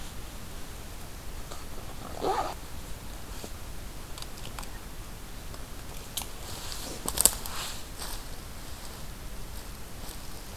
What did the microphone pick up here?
forest ambience